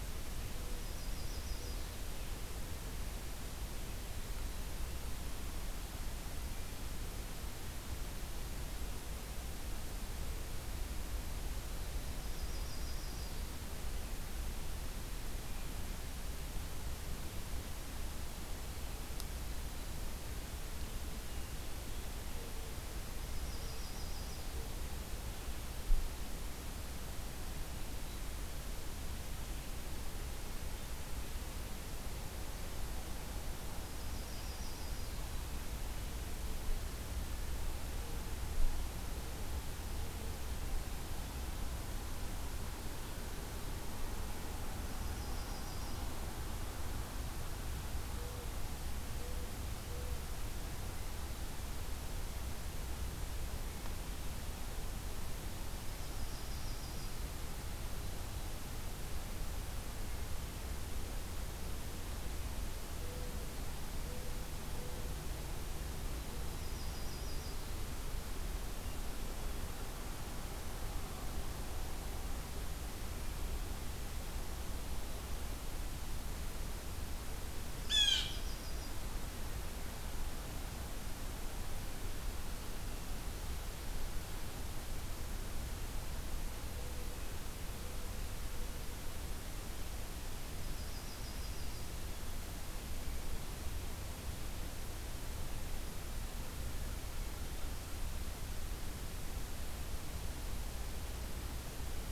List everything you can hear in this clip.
Yellow-rumped Warbler, Mourning Dove, Blue Jay